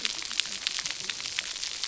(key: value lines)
label: biophony, cascading saw
recorder: SoundTrap 300